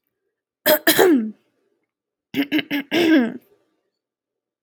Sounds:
Throat clearing